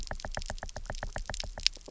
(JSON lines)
{"label": "biophony, knock", "recorder": "SoundTrap 300"}